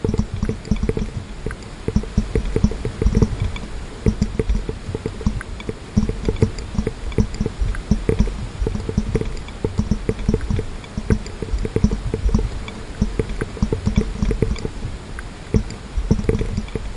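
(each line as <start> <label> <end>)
0.0 Droplets are dripping. 17.0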